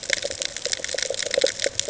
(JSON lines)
{"label": "ambient", "recorder": "HydroMoth"}